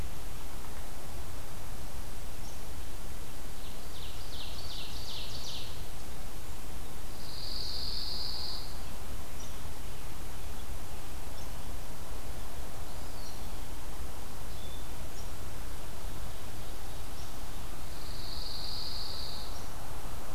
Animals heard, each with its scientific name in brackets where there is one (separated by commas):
Pine Warbler (Setophaga pinus), Ovenbird (Seiurus aurocapilla), Eastern Wood-Pewee (Contopus virens)